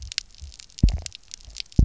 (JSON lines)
{"label": "biophony, double pulse", "recorder": "SoundTrap 300"}